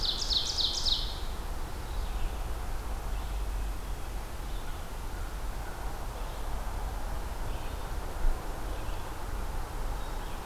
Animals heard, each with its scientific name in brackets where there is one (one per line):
Ovenbird (Seiurus aurocapilla)
Red-eyed Vireo (Vireo olivaceus)